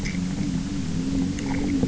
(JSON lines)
{"label": "anthrophony, boat engine", "recorder": "SoundTrap 300"}